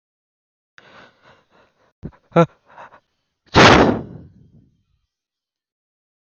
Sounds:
Sneeze